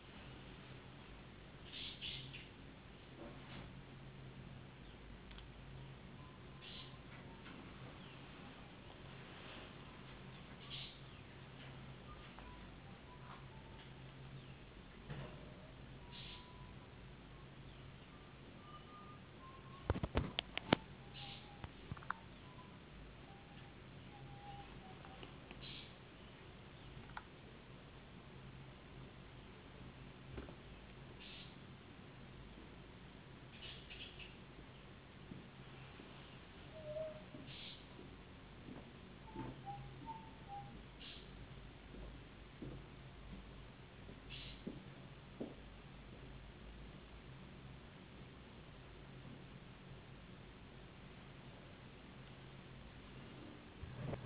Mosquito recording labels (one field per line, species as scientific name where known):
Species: no mosquito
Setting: insect culture